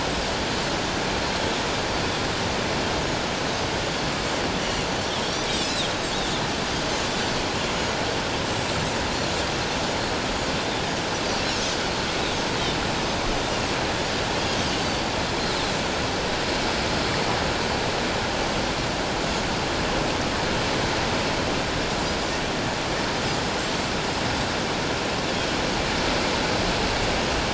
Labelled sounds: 4.6	4.9	Pacific white-sided dolphin, 2.7 to 3.1 kHz
5.2	5.8	Pacific white-sided dolphin, 3.4 to 7.7 kHz
11.5	11.7	Pacific white-sided dolphin, 6.0 to 6.9 kHz

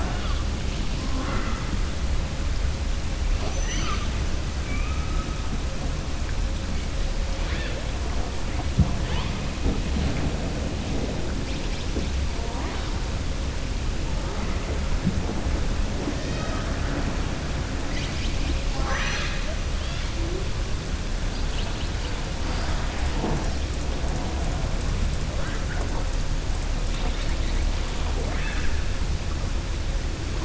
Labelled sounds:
16.2	16.7	killer whale, southern resident, 0.61 to 5.8 kHz

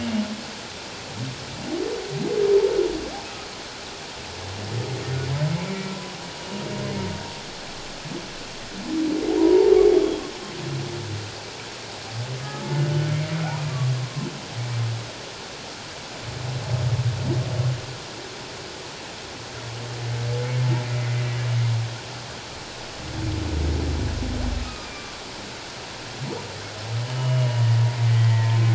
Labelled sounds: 9.4	10.2	humpback whale, 0.78 to 3.4 kHz
12.7	13.0	humpback whale, 1.4 to 1.5 kHz
24.6	24.9	humpback whale, 1.2 to 1.3 kHz
27.0	28.6	humpback whale, 0.88 to 3.0 kHz

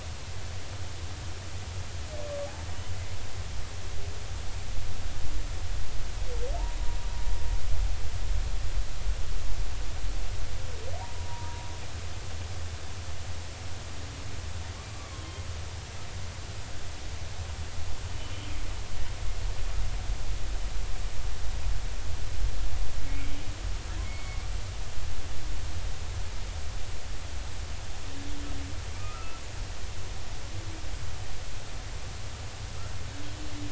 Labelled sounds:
11.0	11.6	humpback whale, 0.90 to 1.0 kHz
15.1	15.4	humpback whale, 3.1 to 3.2 kHz
18.3	18.6	humpback whale, 2.9 to 3.3 kHz
23.1	24.4	humpback whale, 2.1 to 4.4 kHz
28.9	29.4	humpback whale, 1.1 to 1.4 kHz

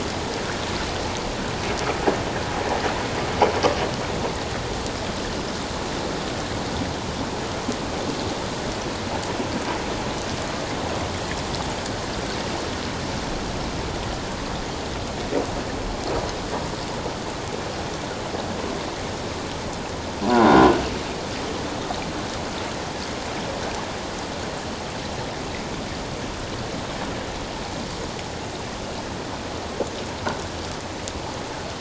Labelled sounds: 20.2	20.6	croaking sound likely from a nearby submerged object, 0.91 to 1.1 kHz

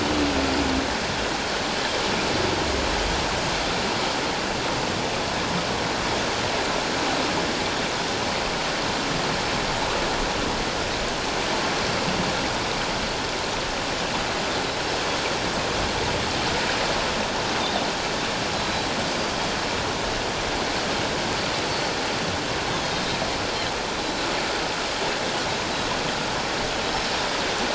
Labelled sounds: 18.5	18.9	Pacific white-sided dolphin, 3.9 to 4.1 kHz
24.0	24.3	Pacific white-sided dolphin, 3.9 to 4.1 kHz

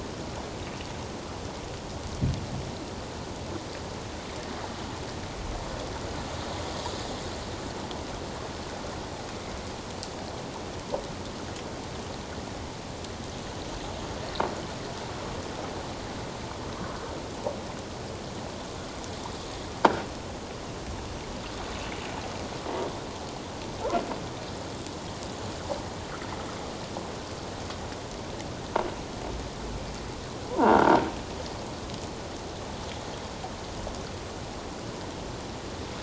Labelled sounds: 30.5	30.9	croaking sound likely from a nearby submerged object, 0.84 to 1.7 kHz

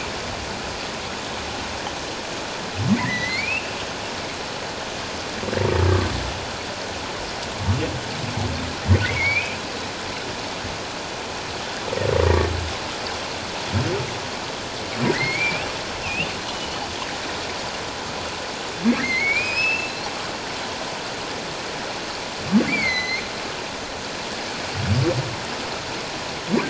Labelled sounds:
2.9	3.7	humpback whale, 1.7 to 2.8 kHz
9.0	9.6	humpback whale, 1.8 to 2.6 kHz
15.1	16.8	humpback whale, 1.8 to 3.0 kHz
18.9	19.9	humpback whale, 1.6 to 5.3 kHz
22.7	23.2	humpback whale, 1.9 to 6.2 kHz

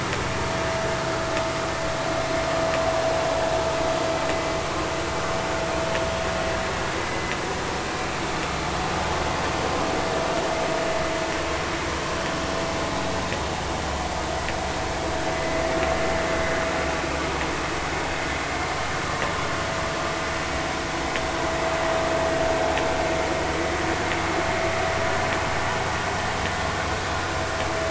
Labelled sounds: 7.1	7.3	vessel noise, 2.0 to 2.1 kHz
15.3	15.6	vessel noise, 1.9 to 2.1 kHz

